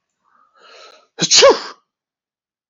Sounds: Sneeze